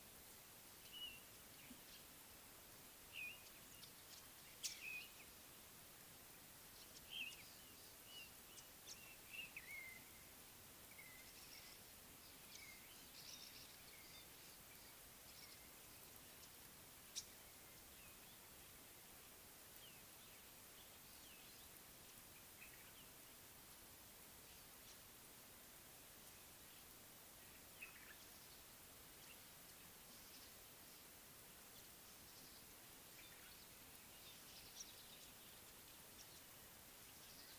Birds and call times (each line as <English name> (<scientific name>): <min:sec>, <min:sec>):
Blue-naped Mousebird (Urocolius macrourus): 0:01.0, 0:03.2, 0:04.9, 0:07.2, 0:09.7
Cardinal Woodpecker (Chloropicus fuscescens): 0:13.4
Green-winged Pytilia (Pytilia melba): 0:17.2